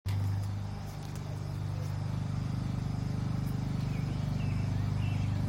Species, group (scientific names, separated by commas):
Neotibicen pruinosus, Cicadidae